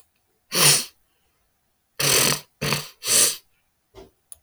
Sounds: Sniff